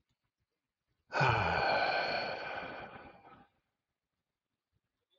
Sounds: Sigh